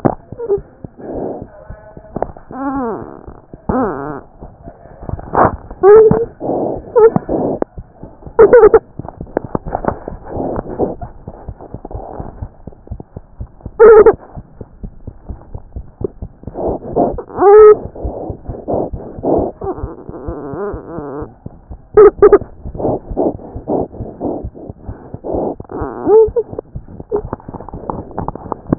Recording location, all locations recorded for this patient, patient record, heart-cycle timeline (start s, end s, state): mitral valve (MV)
mitral valve (MV)
#Age: Child
#Sex: Male
#Height: 79.0 cm
#Weight: 10.1 kg
#Pregnancy status: False
#Murmur: Absent
#Murmur locations: nan
#Most audible location: nan
#Systolic murmur timing: nan
#Systolic murmur shape: nan
#Systolic murmur grading: nan
#Systolic murmur pitch: nan
#Systolic murmur quality: nan
#Diastolic murmur timing: nan
#Diastolic murmur shape: nan
#Diastolic murmur grading: nan
#Diastolic murmur pitch: nan
#Diastolic murmur quality: nan
#Outcome: Normal
#Campaign: 2014 screening campaign
0.00	14.16	unannotated
14.16	14.36	diastole
14.36	14.42	S1
14.42	14.60	systole
14.60	14.66	S2
14.66	14.81	diastole
14.81	14.91	S1
14.91	15.06	systole
15.06	15.14	S2
15.14	15.30	diastole
15.30	15.38	S1
15.38	15.52	systole
15.52	15.60	S2
15.60	15.76	diastole
15.76	15.86	S1
15.86	16.00	systole
16.00	16.10	S2
16.10	16.22	diastole
16.22	16.28	S1
16.28	16.46	systole
16.46	16.52	S2
16.52	16.69	diastole
16.69	28.78	unannotated